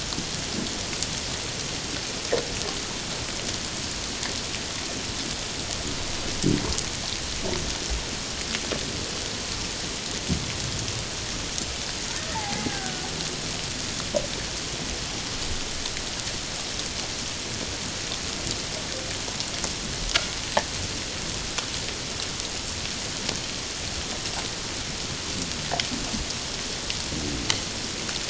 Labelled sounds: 12.3	13.1	killer whale, Bigg's (transient), 0.78 to 1.7 kHz

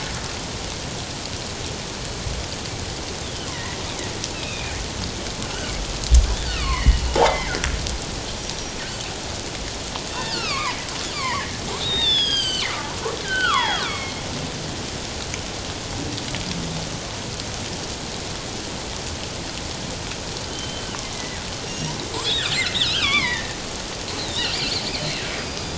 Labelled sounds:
3.5	3.8	killer whale, northern resident, G clan, 1.8 to 2.2 kHz
4.3	4.8	killer whale, northern resident, G clan, 2.2 to 3.9 kHz
6.4	7.7	killer whale, northern resident, G clan, 0.94 to 3.1 kHz
10.1	14.2	killer whale, northern resident, G clan, 0.78 to 7.9 kHz
20.5	22.5	killer whale, northern resident, G clan, 1.8 to 5.8 kHz
22.7	23.6	killer whale, northern resident, G clan, 0.84 to 4.0 kHz
24.2	25.7	killer whale, northern resident, G clan, 3.5 to 4.9 kHz

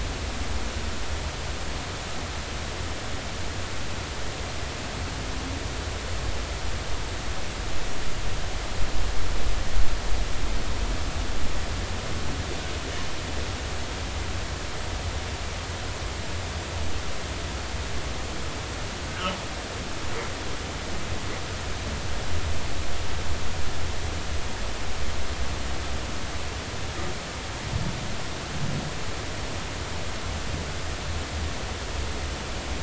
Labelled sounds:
19.1	19.3	humpback whale, 1.2 to 1.6 kHz

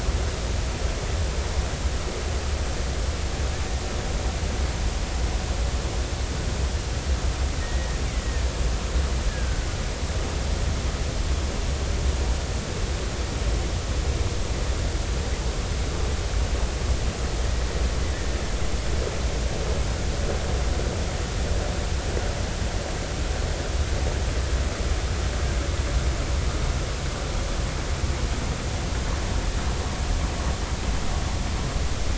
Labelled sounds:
7.6	8.0	killer whale, Bigg's (transient), 1.8 to 2.0 kHz
9.3	9.7	killer whale, Bigg's (transient), 1.4 to 1.8 kHz

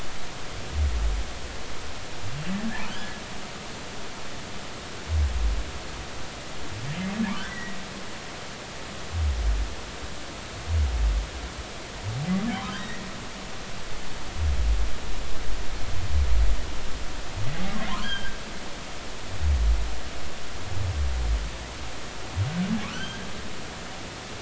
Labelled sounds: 2.9	3.2	humpback whale, 1.4 to 3.5 kHz
7.4	7.8	humpback whale, 1.9 to 2.0 kHz
12.6	13.1	humpback whale, 0.96 to 2.0 kHz
18.0	18.4	humpback whale, 1.4 to 3.3 kHz
22.9	23.3	humpback whale, 1.3 to 3.3 kHz

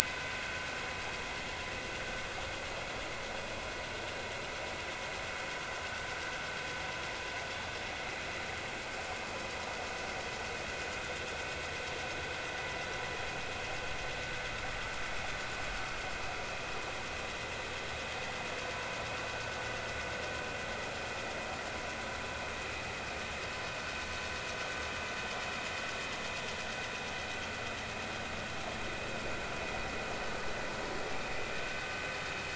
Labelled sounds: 0.1	0.4	vessel noise, 0.96 to 1.1 kHz
1.0	1.7	vessel noise, 1.4 to 2.6 kHz

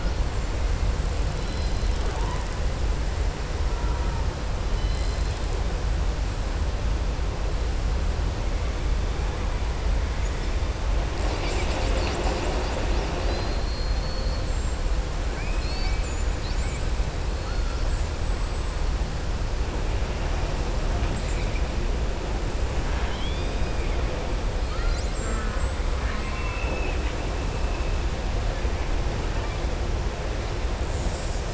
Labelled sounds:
4.7	5.4	killer whale, southern resident, 2.0 to 5.5 kHz
13.1	14.4	killer whale, southern resident, 3.3 to 4.9 kHz
22.8	23.7	killer whale, southern resident, 0.94 to 4.9 kHz
25.1	25.7	killer whale, southern resident, 0.47 to 2.4 kHz
25.9	27.2	killer whale, southern resident, 1.0 to 3.0 kHz

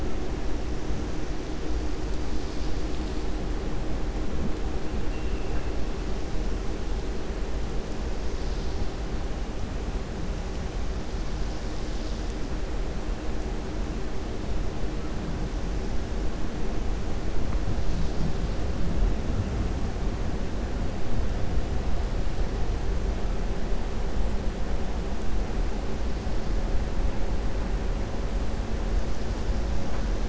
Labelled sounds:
5.1	5.7	vessel noise, 1.6 to 3.1 kHz

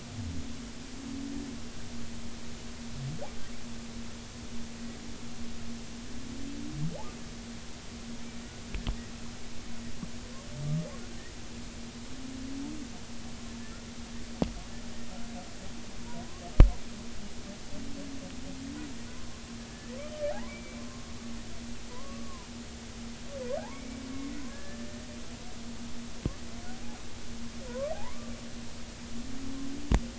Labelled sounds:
19.7	20.8	humpback whale, 0.80 to 2.4 kHz
21.9	22.5	humpback whale, 0.90 to 1.2 kHz
23.6	23.8	humpback whale, 0.80 to 1.2 kHz
24.5	25.0	humpback whale, 1.6 to 1.8 kHz
27.7	28.3	humpback whale, 0.80 to 1.2 kHz

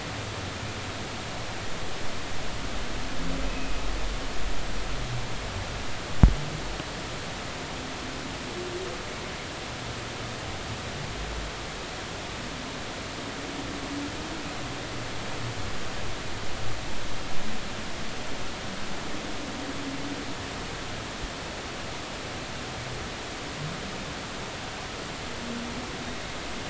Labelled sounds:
3.5	3.8	humpback whale, 2.4 to 2.7 kHz

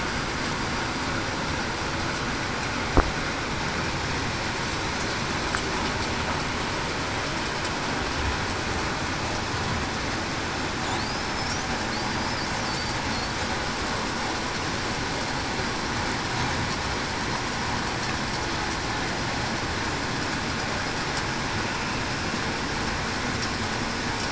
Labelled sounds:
11.1	11.6	killer whale, Bigg's (transient), 4.9 to 5.9 kHz

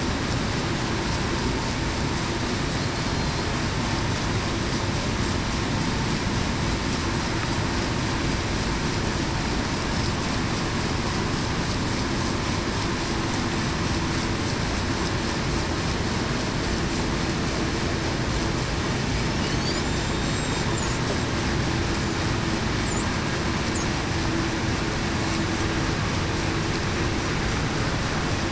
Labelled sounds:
3.0	3.4	killer whale, Bigg's (transient), 4.1 to 4.3 kHz
19.8	20.6	killer whale, Bigg's (transient), 3.7 to 7.6 kHz

